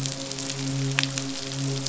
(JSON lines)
{"label": "biophony, midshipman", "recorder": "SoundTrap 500"}